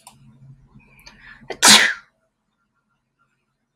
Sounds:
Sneeze